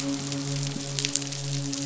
{"label": "biophony, midshipman", "recorder": "SoundTrap 500"}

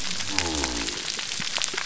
{"label": "biophony", "recorder": "SoundTrap 300"}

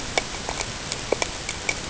{"label": "ambient", "recorder": "HydroMoth"}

